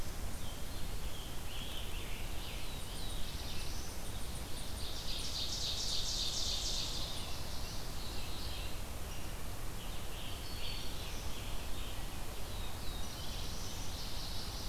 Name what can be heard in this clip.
Red-eyed Vireo, Scarlet Tanager, Black-throated Blue Warbler, Eastern Chipmunk, Ovenbird, Mourning Warbler, Black-throated Green Warbler